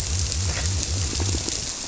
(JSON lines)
{"label": "biophony, squirrelfish (Holocentrus)", "recorder": "SoundTrap 300"}
{"label": "biophony", "recorder": "SoundTrap 300"}